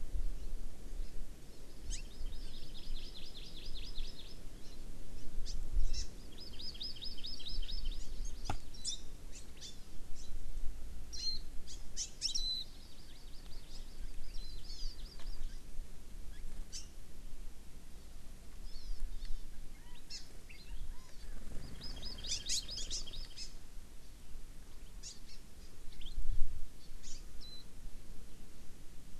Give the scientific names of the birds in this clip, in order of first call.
Chlorodrepanis virens, Zosterops japonicus, Garrulax canorus